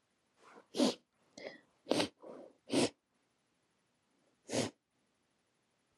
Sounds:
Sniff